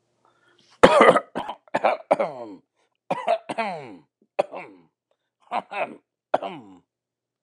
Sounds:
Throat clearing